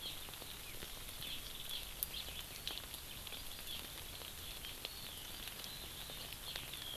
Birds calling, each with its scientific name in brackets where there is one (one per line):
Eurasian Skylark (Alauda arvensis)
Hawaii Amakihi (Chlorodrepanis virens)